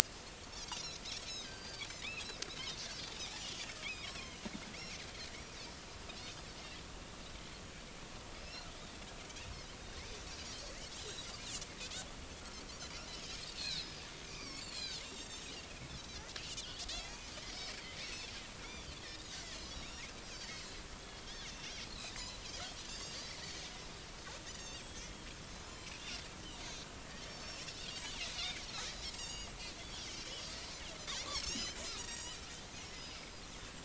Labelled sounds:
0.5	2.2	Pacific white-sided dolphin, 1.9 to 7.2 kHz
3.8	4.5	Pacific white-sided dolphin, 2.1 to 5.6 kHz
6.2	6.4	Pacific white-sided dolphin, 3.5 to 3.8 kHz
13.5	15.4	Pacific white-sided dolphin, 1.0 to 5.2 kHz
16.9	17.7	Pacific white-sided dolphin, 1.8 to 5.3 kHz
19.1	21.5	Pacific white-sided dolphin, 1.8 to 6.1 kHz
22.8	23.7	Pacific white-sided dolphin, 2.6 to 7.5 kHz
24.5	25.1	Pacific white-sided dolphin, 3.1 to 7.9 kHz
25.6	26.2	Pacific white-sided dolphin, 2.7 to 5.3 kHz
27.2	29.5	Pacific white-sided dolphin, 2.0 to 6.1 kHz
29.8	30.6	Pacific white-sided dolphin, 2.2 to 5.1 kHz
31.3	33.4	Pacific white-sided dolphin, 1.8 to 7.9 kHz

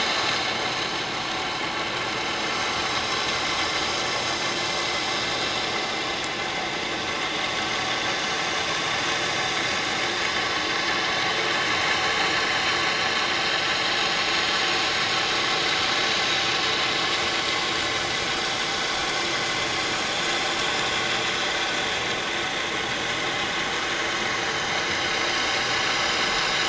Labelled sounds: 4.3	4.6	vessel noise, 5.9 to 6.1 kHz
5.9	6.1	vessel noise, 7.1 to 7.2 kHz
9.3	9.6	vessel noise, 5.9 to 6.0 kHz
13.7	14.2	vessel noise, 6.4 to 6.8 kHz
16.0	16.3	vessel noise, 6.1 to 6.3 kHz
21.8	22.0	vessel noise, 7.2 to 7.4 kHz
25.7	26.0	vessel noise, 6.8 to 7.2 kHz

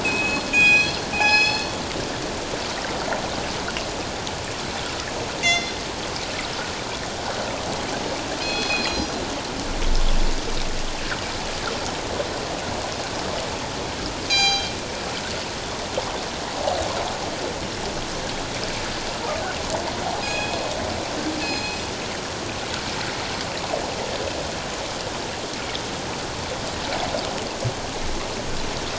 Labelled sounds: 0.0	1.7	killer whale, northern resident, G clan, call N24ii, 0.78 to 7.7 kHz
5.4	5.7	killer whale, northern resident, G clan, call N24ii, 2.0 to 5.7 kHz
8.4	9.2	killer whale, northern resident, G clan, call N24ii, 2.4 to 5.8 kHz
14.3	14.7	killer whale, northern resident, G clan, call N24ii, 0.78 to 7.2 kHz
20.2	20.6	killer whale, northern resident, G clan, call N24ii, 1.6 to 7.7 kHz
21.4	21.8	killer whale, northern resident, G clan, call N24ii, 2.4 to 6.8 kHz

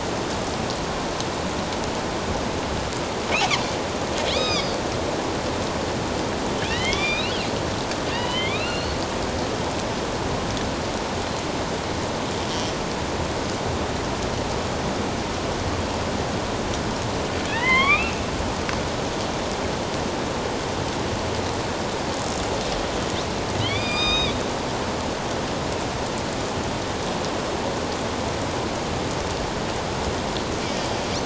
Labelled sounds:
4.3	4.7	killer whale, northern resident, A clan, AB subclan, 1.1 to 5.1 kHz
6.7	9.0	killer whale, northern resident, A clan, AB subclan, 0.94 to 5.1 kHz
12.5	12.7	killer whale, northern resident, A clan, AB subclan, 5.4 to 5.6 kHz
17.5	18.2	killer whale, northern resident, A clan, AB subclan, 0.88 to 4.8 kHz
23.6	24.3	killer whale, northern resident, A clan, AB subclan, 1.2 to 6.3 kHz

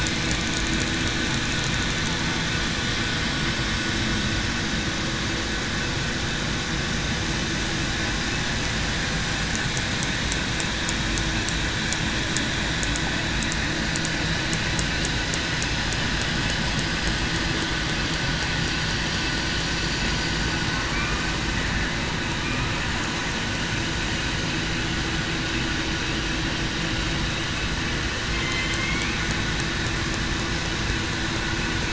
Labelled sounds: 28.4	29.1	killer whale, southern resident, 2.0 to 2.3 kHz

